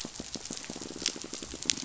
{"label": "biophony, pulse", "recorder": "SoundTrap 500"}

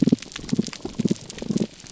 {"label": "biophony, damselfish", "recorder": "SoundTrap 300"}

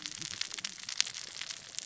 {"label": "biophony, cascading saw", "recorder": "SoundTrap 600 or HydroMoth"}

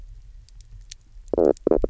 {"label": "biophony, knock croak", "recorder": "SoundTrap 300"}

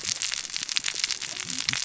{"label": "biophony, cascading saw", "recorder": "SoundTrap 600 or HydroMoth"}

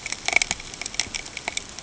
{"label": "ambient", "recorder": "HydroMoth"}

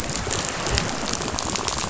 {"label": "biophony, rattle", "recorder": "SoundTrap 500"}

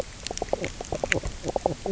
{"label": "biophony, knock croak", "recorder": "SoundTrap 300"}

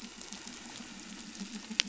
{"label": "anthrophony, boat engine", "recorder": "SoundTrap 500"}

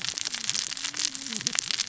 {"label": "biophony, cascading saw", "recorder": "SoundTrap 600 or HydroMoth"}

